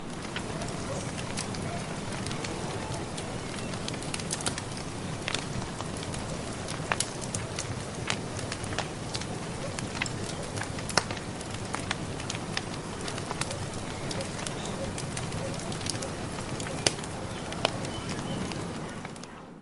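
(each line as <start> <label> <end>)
0.0 Fire burning outdoors at a steady rate. 19.6
0.3 An unknown whining sound is heard in the background. 0.8
3.7 Fire crackling nearby. 5.5
6.8 Fire crackling nearby. 7.7
10.9 A loud crackling fire. 11.1
15.6 An unknown whining sound is heard in the background. 16.3
16.7 A loud crackling fire. 17.1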